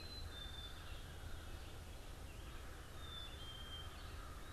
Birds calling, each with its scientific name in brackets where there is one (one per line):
Red-eyed Vireo (Vireo olivaceus)
Black-capped Chickadee (Poecile atricapillus)
American Crow (Corvus brachyrhynchos)